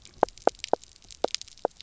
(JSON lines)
{"label": "biophony, knock croak", "recorder": "SoundTrap 300"}